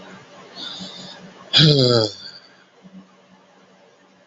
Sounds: Sigh